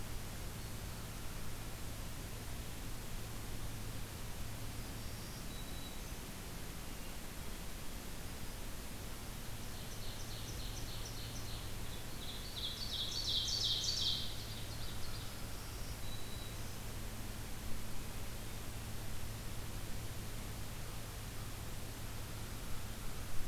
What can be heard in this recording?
Black-throated Green Warbler, Ovenbird, Hermit Thrush